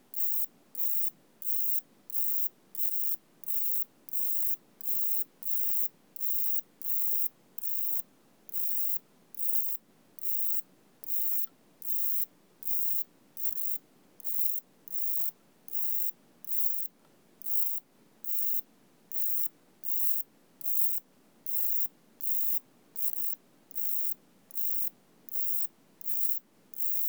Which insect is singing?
Pseudosubria bispinosa, an orthopteran